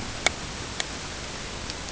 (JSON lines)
{"label": "ambient", "recorder": "HydroMoth"}